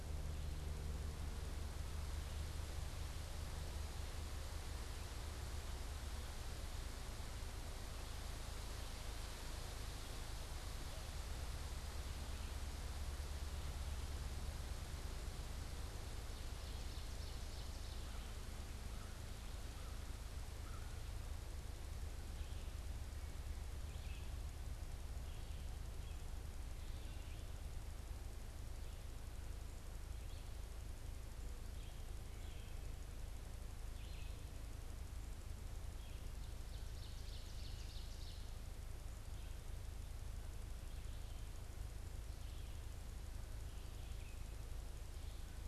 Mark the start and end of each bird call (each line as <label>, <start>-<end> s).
Ovenbird (Seiurus aurocapilla), 16.0-18.2 s
American Crow (Corvus brachyrhynchos), 18.0-21.0 s
Red-eyed Vireo (Vireo olivaceus), 22.3-36.2 s
Ovenbird (Seiurus aurocapilla), 36.5-38.7 s